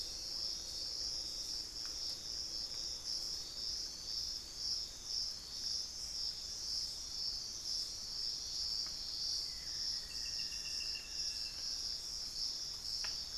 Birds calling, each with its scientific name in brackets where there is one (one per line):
Buff-throated Woodcreeper (Xiphorhynchus guttatus)